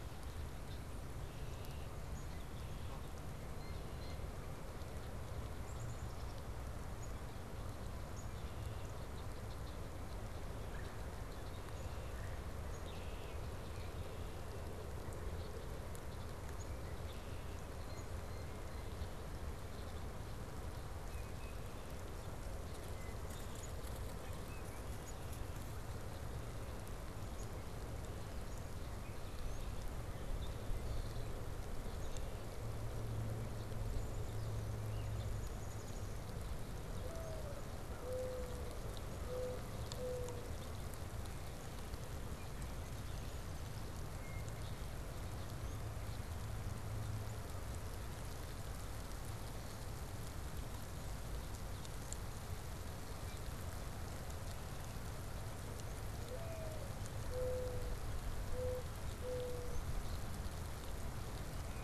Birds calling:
Black-capped Chickadee (Poecile atricapillus), Red-bellied Woodpecker (Melanerpes carolinus), Mourning Dove (Zenaida macroura), Blue Jay (Cyanocitta cristata), Tufted Titmouse (Baeolophus bicolor), Red-winged Blackbird (Agelaius phoeniceus)

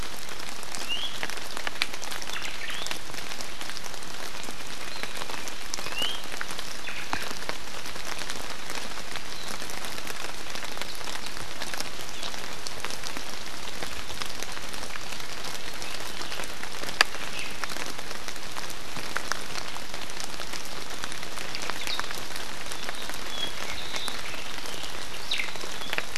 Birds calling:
Apapane (Himatione sanguinea), Omao (Myadestes obscurus), Iiwi (Drepanis coccinea)

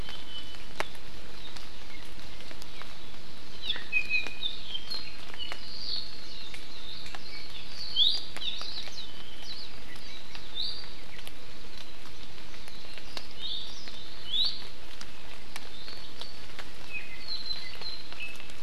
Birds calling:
Apapane (Himatione sanguinea), Hawaii Amakihi (Chlorodrepanis virens), Iiwi (Drepanis coccinea)

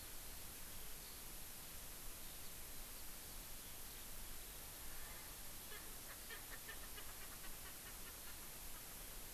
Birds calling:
Erckel's Francolin (Pternistis erckelii), Eurasian Skylark (Alauda arvensis)

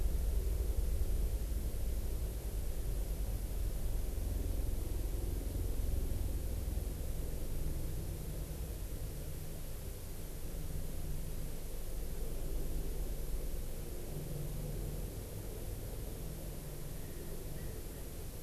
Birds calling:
Erckel's Francolin (Pternistis erckelii)

